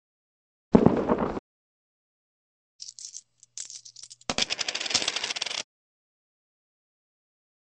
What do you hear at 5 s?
coin